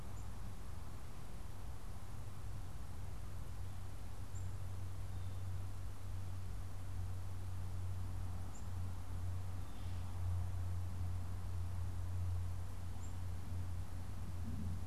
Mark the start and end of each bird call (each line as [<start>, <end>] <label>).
[0.00, 14.87] Black-capped Chickadee (Poecile atricapillus)
[4.90, 5.50] Blue Jay (Cyanocitta cristata)